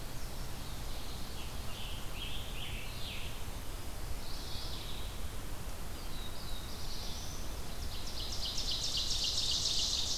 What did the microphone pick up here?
Red-eyed Vireo, Scarlet Tanager, Mourning Warbler, Black-throated Blue Warbler, Ovenbird